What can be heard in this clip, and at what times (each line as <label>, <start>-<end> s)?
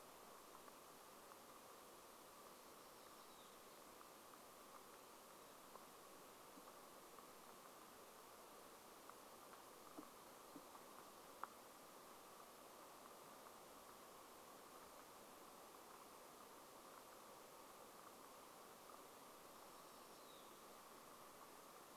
unidentified sound, 2-4 s
unidentified sound, 18-20 s